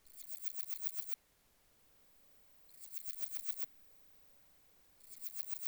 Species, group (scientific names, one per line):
Parnassiana chelmos
Orthoptera